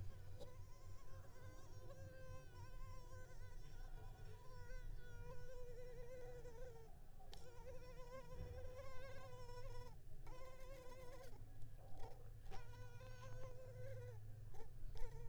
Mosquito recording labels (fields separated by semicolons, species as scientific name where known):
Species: Culex pipiens complex; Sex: female; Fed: unfed; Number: one; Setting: cup